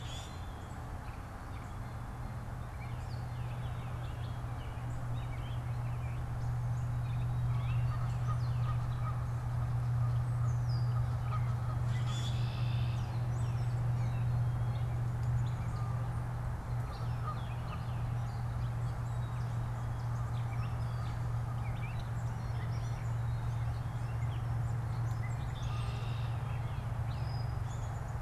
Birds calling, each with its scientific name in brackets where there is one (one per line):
Canada Goose (Branta canadensis)
Red-winged Blackbird (Agelaius phoeniceus)
Gray Catbird (Dumetella carolinensis)